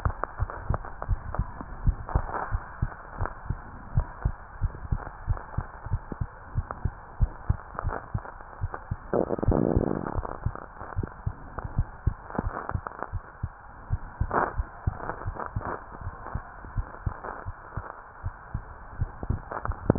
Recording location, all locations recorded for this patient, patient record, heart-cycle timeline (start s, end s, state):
tricuspid valve (TV)
aortic valve (AV)+pulmonary valve (PV)+tricuspid valve (TV)+mitral valve (MV)
#Age: Child
#Sex: Female
#Height: 131.0 cm
#Weight: 27.4 kg
#Pregnancy status: False
#Murmur: Absent
#Murmur locations: nan
#Most audible location: nan
#Systolic murmur timing: nan
#Systolic murmur shape: nan
#Systolic murmur grading: nan
#Systolic murmur pitch: nan
#Systolic murmur quality: nan
#Diastolic murmur timing: nan
#Diastolic murmur shape: nan
#Diastolic murmur grading: nan
#Diastolic murmur pitch: nan
#Diastolic murmur quality: nan
#Outcome: Abnormal
#Campaign: 2015 screening campaign
0.00	1.52	unannotated
1.52	1.82	diastole
1.82	1.98	S1
1.98	2.14	systole
2.14	2.28	S2
2.28	2.50	diastole
2.50	2.62	S1
2.62	2.78	systole
2.78	2.90	S2
2.90	3.18	diastole
3.18	3.30	S1
3.30	3.48	systole
3.48	3.62	S2
3.62	3.92	diastole
3.92	4.06	S1
4.06	4.24	systole
4.24	4.36	S2
4.36	4.60	diastole
4.60	4.74	S1
4.74	4.90	systole
4.90	5.04	S2
5.04	5.26	diastole
5.26	5.40	S1
5.40	5.54	systole
5.54	5.66	S2
5.66	5.90	diastole
5.90	6.04	S1
6.04	6.20	systole
6.20	6.28	S2
6.28	6.52	diastole
6.52	6.66	S1
6.66	6.82	systole
6.82	6.92	S2
6.92	7.18	diastole
7.18	7.32	S1
7.32	7.46	systole
7.46	7.60	S2
7.60	7.84	diastole
7.84	7.96	S1
7.96	8.14	systole
8.14	8.22	S2
8.22	8.57	diastole
8.57	8.71	S1
8.71	8.88	systole
8.88	8.98	S2
8.98	9.44	diastole
9.44	9.57	S1
9.57	9.74	systole
9.74	9.85	S2
9.85	10.12	diastole
10.12	10.26	S1
10.26	10.44	systole
10.44	10.60	S2
10.60	10.94	diastole
10.94	11.10	S1
11.10	11.24	systole
11.24	11.38	S2
11.38	11.72	diastole
11.72	11.88	S1
11.88	12.04	systole
12.04	12.18	S2
12.18	12.46	diastole
12.46	12.58	S1
12.58	12.74	systole
12.74	12.86	S2
12.86	13.12	diastole
13.12	13.22	S1
13.22	13.41	systole
13.41	13.54	S2
13.54	13.88	diastole
13.88	14.02	S1
14.02	14.18	systole
14.18	14.32	S2
14.32	14.56	diastole
14.56	14.70	S1
14.70	14.84	systole
14.84	14.98	S2
14.98	15.24	diastole
15.24	15.36	S1
15.36	15.54	systole
15.54	15.68	S2
15.68	16.02	diastole
16.02	16.14	S1
16.14	16.32	systole
16.32	16.42	S2
16.42	16.72	diastole
16.72	16.86	S1
16.86	17.04	systole
17.04	17.18	S2
17.18	17.45	diastole
17.45	17.56	S1
17.56	17.78	systole
17.78	17.90	S2
17.90	18.24	diastole
18.24	18.34	S1
18.34	18.52	systole
18.52	18.66	S2
18.66	18.96	diastole
18.96	19.10	S1
19.10	19.28	systole
19.28	19.42	S2
19.42	19.66	diastole
19.66	19.98	unannotated